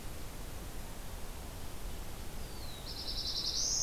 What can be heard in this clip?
Black-throated Blue Warbler